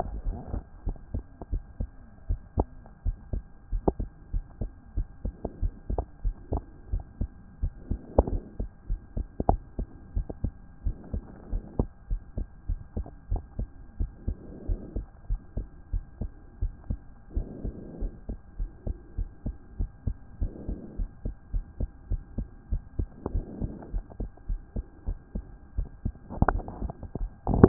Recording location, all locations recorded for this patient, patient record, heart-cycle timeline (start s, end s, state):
pulmonary valve (PV)
pulmonary valve (PV)+tricuspid valve (TV)+mitral valve (MV)
#Age: Child
#Sex: Female
#Height: 127.0 cm
#Weight: 24.5 kg
#Pregnancy status: False
#Murmur: Absent
#Murmur locations: nan
#Most audible location: nan
#Systolic murmur timing: nan
#Systolic murmur shape: nan
#Systolic murmur grading: nan
#Systolic murmur pitch: nan
#Systolic murmur quality: nan
#Diastolic murmur timing: nan
#Diastolic murmur shape: nan
#Diastolic murmur grading: nan
#Diastolic murmur pitch: nan
#Diastolic murmur quality: nan
#Outcome: Normal
#Campaign: 2014 screening campaign
0.00	0.26	diastole
0.26	0.38	S1
0.38	0.52	systole
0.52	0.62	S2
0.62	0.86	diastole
0.86	0.96	S1
0.96	1.14	systole
1.14	1.24	S2
1.24	1.52	diastole
1.52	1.62	S1
1.62	1.78	systole
1.78	1.88	S2
1.88	2.28	diastole
2.28	2.40	S1
2.40	2.56	systole
2.56	2.66	S2
2.66	3.04	diastole
3.04	3.16	S1
3.16	3.32	systole
3.32	3.42	S2
3.42	3.72	diastole
3.72	3.82	S1
3.82	4.00	systole
4.00	4.08	S2
4.08	4.32	diastole
4.32	4.44	S1
4.44	4.60	systole
4.60	4.70	S2
4.70	4.96	diastole
4.96	5.08	S1
5.08	5.24	systole
5.24	5.34	S2
5.34	5.62	diastole
5.62	5.72	S1
5.72	5.90	systole
5.90	6.02	S2
6.02	6.24	diastole
6.24	6.36	S1
6.36	6.52	systole
6.52	6.62	S2
6.62	6.92	diastole
6.92	7.02	S1
7.02	7.20	systole
7.20	7.30	S2
7.30	7.62	diastole
7.62	7.72	S1
7.72	7.90	systole
7.90	8.00	S2
8.00	8.26	diastole
8.26	8.42	S1
8.42	8.58	systole
8.58	8.68	S2
8.68	8.88	diastole
8.88	9.00	S1
9.00	9.16	systole
9.16	9.26	S2
9.26	9.48	diastole
9.48	9.60	S1
9.60	9.78	systole
9.78	9.86	S2
9.86	10.14	diastole
10.14	10.26	S1
10.26	10.42	systole
10.42	10.52	S2
10.52	10.84	diastole
10.84	10.96	S1
10.96	11.12	systole
11.12	11.22	S2
11.22	11.52	diastole
11.52	11.64	S1
11.64	11.78	systole
11.78	11.88	S2
11.88	12.10	diastole
12.10	12.22	S1
12.22	12.36	systole
12.36	12.46	S2
12.46	12.68	diastole
12.68	12.80	S1
12.80	12.96	systole
12.96	13.06	S2
13.06	13.30	diastole
13.30	13.42	S1
13.42	13.58	systole
13.58	13.68	S2
13.68	13.98	diastole
13.98	14.10	S1
14.10	14.26	systole
14.26	14.36	S2
14.36	14.68	diastole
14.68	14.80	S1
14.80	14.96	systole
14.96	15.06	S2
15.06	15.30	diastole
15.30	15.40	S1
15.40	15.56	systole
15.56	15.66	S2
15.66	15.92	diastole
15.92	16.04	S1
16.04	16.20	systole
16.20	16.30	S2
16.30	16.60	diastole
16.60	16.72	S1
16.72	16.88	systole
16.88	16.98	S2
16.98	17.34	diastole
17.34	17.46	S1
17.46	17.64	systole
17.64	17.74	S2
17.74	18.00	diastole
18.00	18.12	S1
18.12	18.28	systole
18.28	18.38	S2
18.38	18.58	diastole
18.58	18.70	S1
18.70	18.86	systole
18.86	18.96	S2
18.96	19.18	diastole
19.18	19.28	S1
19.28	19.46	systole
19.46	19.54	S2
19.54	19.78	diastole
19.78	19.90	S1
19.90	20.06	systole
20.06	20.16	S2
20.16	20.40	diastole
20.40	20.52	S1
20.52	20.68	systole
20.68	20.78	S2
20.78	20.98	diastole
20.98	21.10	S1
21.10	21.24	systole
21.24	21.34	S2
21.34	21.54	diastole
21.54	21.64	S1
21.64	21.80	systole
21.80	21.90	S2
21.90	22.10	diastole
22.10	22.22	S1
22.22	22.36	systole
22.36	22.46	S2
22.46	22.70	diastole
22.70	22.82	S1
22.82	22.98	systole
22.98	23.08	S2
23.08	23.32	diastole
23.32	23.44	S1
23.44	23.60	systole
23.60	23.72	S2
23.72	23.92	diastole
23.92	24.04	S1
24.04	24.20	systole
24.20	24.30	S2
24.30	24.48	diastole
24.48	24.60	S1
24.60	24.76	systole
24.76	24.84	S2
24.84	25.06	diastole
25.06	25.18	S1
25.18	25.34	systole
25.34	25.44	S2
25.44	25.78	diastole